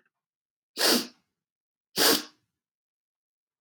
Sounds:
Sniff